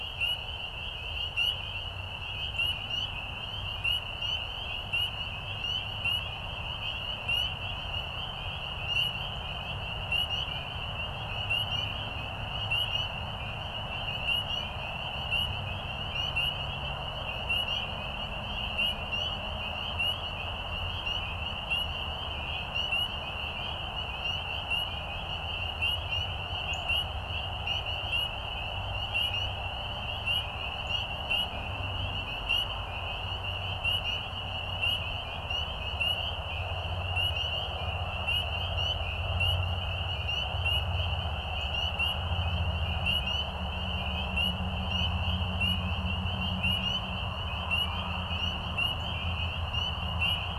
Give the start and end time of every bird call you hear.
26.6s-26.9s: Northern Cardinal (Cardinalis cardinalis)

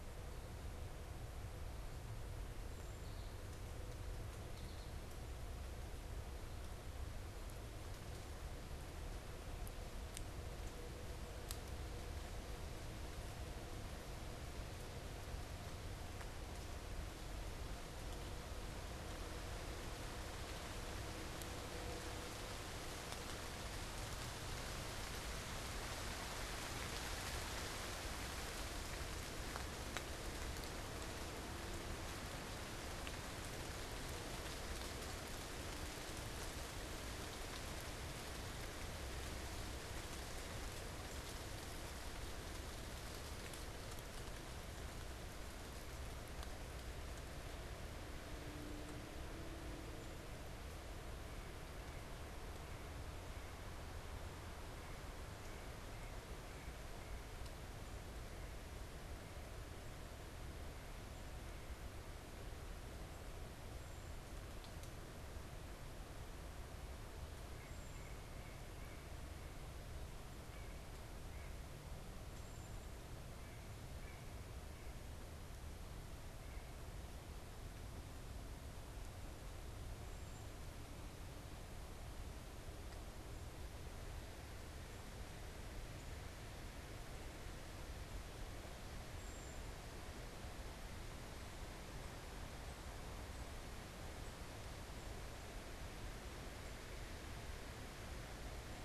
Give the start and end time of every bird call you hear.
51.0s-59.6s: White-breasted Nuthatch (Sitta carolinensis)
67.3s-76.9s: White-breasted Nuthatch (Sitta carolinensis)
89.0s-89.6s: unidentified bird

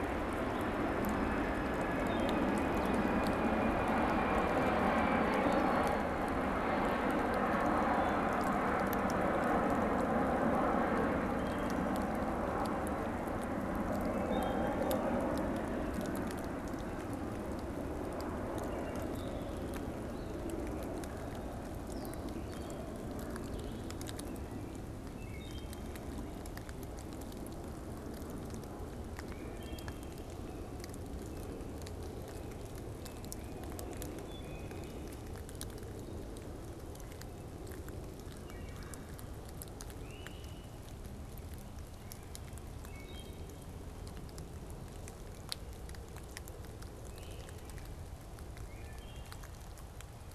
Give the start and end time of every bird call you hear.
0.0s-25.1s: Blue-headed Vireo (Vireo solitarius)
0.0s-39.5s: Wood Thrush (Hylocichla mustelina)
38.6s-39.3s: Red-bellied Woodpecker (Melanerpes carolinus)
39.8s-40.9s: Great Crested Flycatcher (Myiarchus crinitus)
42.8s-43.7s: Wood Thrush (Hylocichla mustelina)
47.0s-47.7s: Great Crested Flycatcher (Myiarchus crinitus)
48.6s-49.5s: Wood Thrush (Hylocichla mustelina)

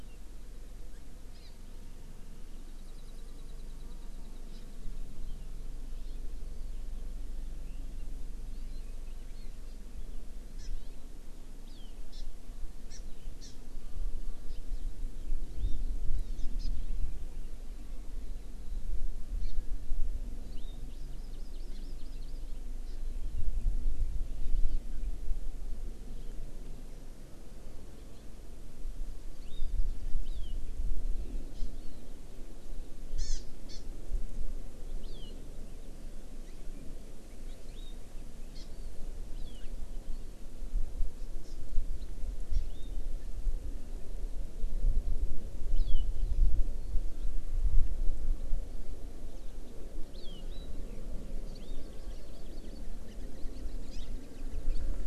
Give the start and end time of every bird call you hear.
1.3s-1.5s: Hawaii Amakihi (Chlorodrepanis virens)
2.7s-4.4s: Warbling White-eye (Zosterops japonicus)
4.5s-4.6s: Hawaii Amakihi (Chlorodrepanis virens)
5.9s-6.2s: Hawaii Amakihi (Chlorodrepanis virens)
10.6s-10.7s: Hawaii Amakihi (Chlorodrepanis virens)
10.7s-11.0s: House Finch (Haemorhous mexicanus)
11.7s-12.2s: Hawaii Amakihi (Chlorodrepanis virens)
12.9s-13.0s: Hawaii Amakihi (Chlorodrepanis virens)
13.4s-13.5s: Hawaii Amakihi (Chlorodrepanis virens)
14.5s-14.6s: Hawaii Amakihi (Chlorodrepanis virens)
16.1s-16.7s: Hawaii Amakihi (Chlorodrepanis virens)
19.4s-19.5s: Hawaii Amakihi (Chlorodrepanis virens)
20.5s-22.4s: Hawaii Amakihi (Chlorodrepanis virens)
22.9s-23.0s: Hawaii Amakihi (Chlorodrepanis virens)
24.5s-24.8s: Hawaii Amakihi (Chlorodrepanis virens)
29.4s-29.8s: Hawaii Amakihi (Chlorodrepanis virens)
30.2s-30.5s: Hawaii Amakihi (Chlorodrepanis virens)
31.5s-31.7s: Hawaii Amakihi (Chlorodrepanis virens)
33.2s-33.4s: Hawaii Amakihi (Chlorodrepanis virens)
33.7s-33.8s: Hawaii Amakihi (Chlorodrepanis virens)
35.0s-35.3s: Hawaii Amakihi (Chlorodrepanis virens)
37.7s-37.9s: Hawaii Amakihi (Chlorodrepanis virens)
38.5s-38.6s: Hawaii Amakihi (Chlorodrepanis virens)
39.3s-39.6s: Hawaii Amakihi (Chlorodrepanis virens)
42.5s-42.6s: Hawaii Amakihi (Chlorodrepanis virens)
45.7s-46.0s: Hawaii Amakihi (Chlorodrepanis virens)
50.1s-50.4s: Hawaii Amakihi (Chlorodrepanis virens)
51.5s-52.8s: Hawaii Amakihi (Chlorodrepanis virens)
53.1s-53.2s: Hawaii Amakihi (Chlorodrepanis virens)
53.9s-54.1s: Hawaii Amakihi (Chlorodrepanis virens)

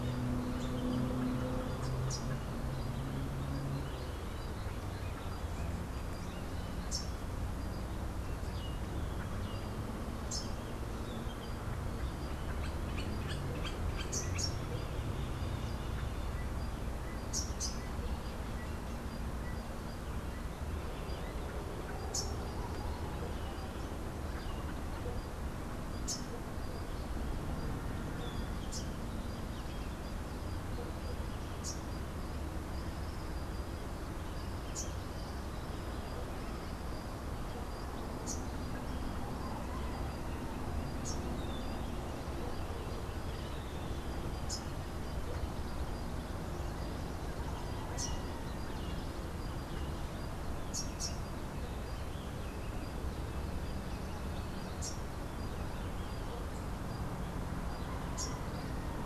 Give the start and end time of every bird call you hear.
1.6s-2.7s: Rufous-capped Warbler (Basileuterus rufifrons)
6.4s-7.5s: Rufous-capped Warbler (Basileuterus rufifrons)
9.9s-11.0s: Rufous-capped Warbler (Basileuterus rufifrons)
12.8s-14.3s: Hoffmann's Woodpecker (Melanerpes hoffmannii)
16.9s-18.0s: Rufous-capped Warbler (Basileuterus rufifrons)
21.7s-22.8s: Rufous-capped Warbler (Basileuterus rufifrons)
25.5s-26.6s: Rufous-capped Warbler (Basileuterus rufifrons)
28.2s-29.3s: Rufous-capped Warbler (Basileuterus rufifrons)
31.1s-32.2s: Rufous-capped Warbler (Basileuterus rufifrons)
34.3s-35.4s: Rufous-capped Warbler (Basileuterus rufifrons)
37.6s-38.7s: Rufous-capped Warbler (Basileuterus rufifrons)
40.6s-41.7s: Rufous-capped Warbler (Basileuterus rufifrons)
50.3s-51.4s: Rufous-capped Warbler (Basileuterus rufifrons)

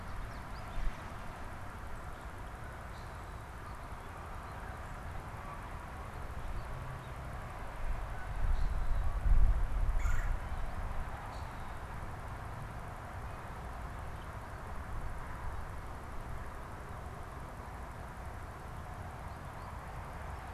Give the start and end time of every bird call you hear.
0.0s-1.1s: American Goldfinch (Spinus tristis)
2.4s-9.3s: Canada Goose (Branta canadensis)
2.8s-3.2s: Common Grackle (Quiscalus quiscula)
8.4s-8.8s: Common Grackle (Quiscalus quiscula)
9.8s-10.5s: Red-bellied Woodpecker (Melanerpes carolinus)
11.2s-11.6s: Common Grackle (Quiscalus quiscula)

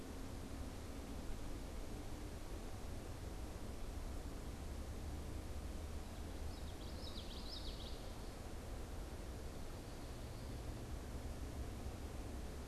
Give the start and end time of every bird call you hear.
6.4s-8.3s: Common Yellowthroat (Geothlypis trichas)

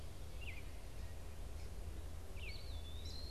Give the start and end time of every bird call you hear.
0.0s-3.3s: Gray Catbird (Dumetella carolinensis)
2.4s-3.3s: Eastern Wood-Pewee (Contopus virens)

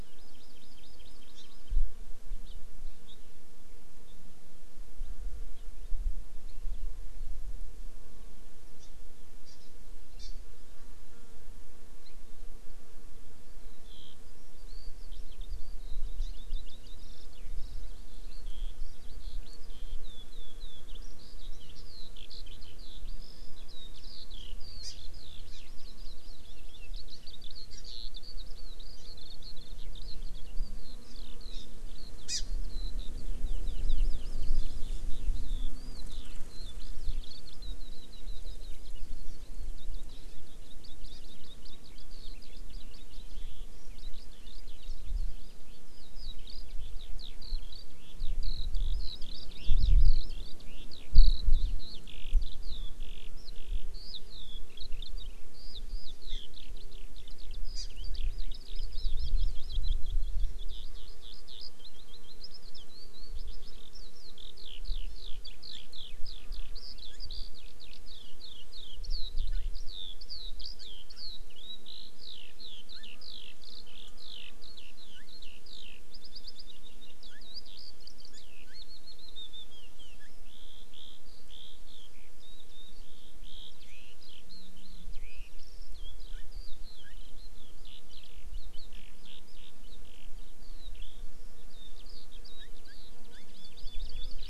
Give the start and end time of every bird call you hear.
0.0s-1.6s: Hawaii Amakihi (Chlorodrepanis virens)
2.4s-2.6s: Hawaii Amakihi (Chlorodrepanis virens)
8.8s-8.9s: Hawaii Amakihi (Chlorodrepanis virens)
9.4s-9.7s: Hawaii Amakihi (Chlorodrepanis virens)
10.2s-10.4s: Hawaii Amakihi (Chlorodrepanis virens)
12.0s-12.2s: Hawaii Amakihi (Chlorodrepanis virens)
13.5s-38.9s: Eurasian Skylark (Alauda arvensis)
16.2s-16.3s: Hawaii Amakihi (Chlorodrepanis virens)
24.8s-24.9s: Hawaii Amakihi (Chlorodrepanis virens)
25.5s-25.6s: Hawaii Amakihi (Chlorodrepanis virens)
27.7s-27.8s: Hawaii Amakihi (Chlorodrepanis virens)
29.0s-29.1s: Hawaii Amakihi (Chlorodrepanis virens)
31.0s-31.1s: Hawaii Amakihi (Chlorodrepanis virens)
31.5s-31.6s: Hawaii Amakihi (Chlorodrepanis virens)
32.3s-32.4s: Hawaii Amakihi (Chlorodrepanis virens)
39.7s-94.5s: Eurasian Skylark (Alauda arvensis)
41.1s-41.2s: Hawaii Amakihi (Chlorodrepanis virens)
56.3s-56.4s: Hawaii Amakihi (Chlorodrepanis virens)
57.7s-57.9s: Hawaii Amakihi (Chlorodrepanis virens)
65.1s-65.3s: Hawaii Amakihi (Chlorodrepanis virens)
93.3s-94.4s: Hawaii Amakihi (Chlorodrepanis virens)

